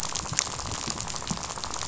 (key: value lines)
label: biophony, rattle
recorder: SoundTrap 500